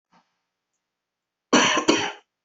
{"expert_labels": [{"quality": "good", "cough_type": "dry", "dyspnea": false, "wheezing": false, "stridor": false, "choking": false, "congestion": false, "nothing": true, "diagnosis": "upper respiratory tract infection", "severity": "mild"}], "age": 34, "gender": "male", "respiratory_condition": false, "fever_muscle_pain": false, "status": "healthy"}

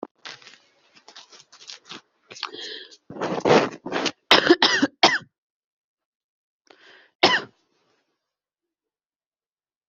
{"expert_labels": [{"quality": "good", "cough_type": "wet", "dyspnea": false, "wheezing": false, "stridor": false, "choking": false, "congestion": false, "nothing": true, "diagnosis": "lower respiratory tract infection", "severity": "mild"}], "gender": "female", "respiratory_condition": false, "fever_muscle_pain": false, "status": "COVID-19"}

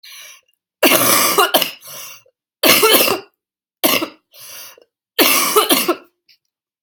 {"expert_labels": [{"quality": "good", "cough_type": "wet", "dyspnea": true, "wheezing": false, "stridor": true, "choking": false, "congestion": false, "nothing": false, "diagnosis": "lower respiratory tract infection", "severity": "severe"}], "age": 24, "gender": "female", "respiratory_condition": true, "fever_muscle_pain": false, "status": "symptomatic"}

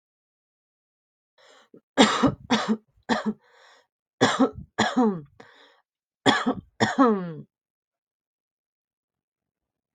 {"expert_labels": [{"quality": "ok", "cough_type": "dry", "dyspnea": false, "wheezing": false, "stridor": false, "choking": false, "congestion": false, "nothing": true, "diagnosis": "lower respiratory tract infection", "severity": "mild"}], "age": 26, "gender": "female", "respiratory_condition": false, "fever_muscle_pain": false, "status": "healthy"}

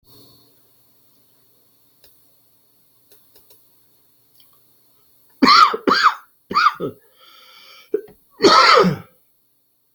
{"expert_labels": [{"quality": "ok", "cough_type": "dry", "dyspnea": false, "wheezing": true, "stridor": false, "choking": false, "congestion": false, "nothing": false, "diagnosis": "obstructive lung disease", "severity": "mild"}, {"quality": "good", "cough_type": "dry", "dyspnea": false, "wheezing": true, "stridor": false, "choking": false, "congestion": false, "nothing": false, "diagnosis": "obstructive lung disease", "severity": "mild"}, {"quality": "good", "cough_type": "dry", "dyspnea": false, "wheezing": false, "stridor": false, "choking": false, "congestion": false, "nothing": true, "diagnosis": "upper respiratory tract infection", "severity": "mild"}, {"quality": "good", "cough_type": "dry", "dyspnea": false, "wheezing": false, "stridor": false, "choking": false, "congestion": false, "nothing": true, "diagnosis": "healthy cough", "severity": "pseudocough/healthy cough"}], "age": 40, "gender": "male", "respiratory_condition": false, "fever_muscle_pain": false, "status": "symptomatic"}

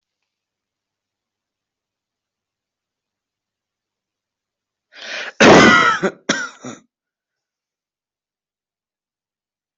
{"expert_labels": [{"quality": "ok", "cough_type": "dry", "dyspnea": false, "wheezing": true, "stridor": false, "choking": false, "congestion": false, "nothing": false, "diagnosis": "obstructive lung disease", "severity": "mild"}], "age": 23, "gender": "male", "respiratory_condition": false, "fever_muscle_pain": false, "status": "COVID-19"}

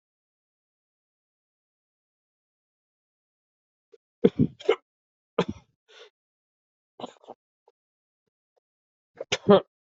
{"expert_labels": [{"quality": "poor", "cough_type": "unknown", "dyspnea": false, "wheezing": false, "stridor": false, "choking": false, "congestion": false, "nothing": false, "diagnosis": "healthy cough", "severity": "unknown"}], "age": 35, "gender": "male", "respiratory_condition": true, "fever_muscle_pain": false, "status": "COVID-19"}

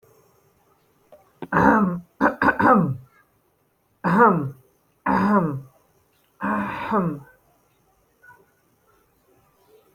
{"expert_labels": [{"quality": "no cough present", "dyspnea": false, "wheezing": false, "stridor": false, "choking": false, "congestion": false, "nothing": false}], "age": 25, "gender": "male", "respiratory_condition": false, "fever_muscle_pain": false, "status": "healthy"}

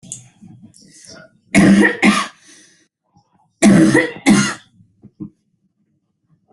{"expert_labels": [{"quality": "ok", "cough_type": "dry", "dyspnea": false, "wheezing": false, "stridor": false, "choking": false, "congestion": false, "nothing": true, "diagnosis": "lower respiratory tract infection", "severity": "mild"}], "age": 27, "gender": "female", "respiratory_condition": false, "fever_muscle_pain": true, "status": "symptomatic"}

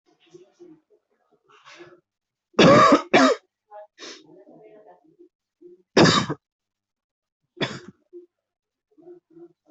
{"expert_labels": [{"quality": "good", "cough_type": "wet", "dyspnea": false, "wheezing": false, "stridor": false, "choking": false, "congestion": false, "nothing": true, "diagnosis": "lower respiratory tract infection", "severity": "mild"}], "age": 20, "gender": "male", "respiratory_condition": false, "fever_muscle_pain": false, "status": "symptomatic"}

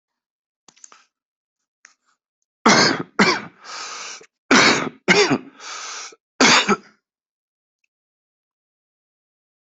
{"expert_labels": [{"quality": "poor", "cough_type": "dry", "dyspnea": false, "wheezing": false, "stridor": false, "choking": false, "congestion": false, "nothing": true, "diagnosis": "healthy cough", "severity": "pseudocough/healthy cough"}, {"quality": "ok", "cough_type": "dry", "dyspnea": true, "wheezing": false, "stridor": false, "choking": false, "congestion": false, "nothing": false, "diagnosis": "lower respiratory tract infection", "severity": "mild"}, {"quality": "good", "cough_type": "dry", "dyspnea": false, "wheezing": false, "stridor": false, "choking": false, "congestion": false, "nothing": true, "diagnosis": "upper respiratory tract infection", "severity": "mild"}, {"quality": "good", "cough_type": "dry", "dyspnea": false, "wheezing": false, "stridor": false, "choking": false, "congestion": false, "nothing": true, "diagnosis": "COVID-19", "severity": "mild"}], "age": 39, "gender": "male", "respiratory_condition": true, "fever_muscle_pain": false, "status": "COVID-19"}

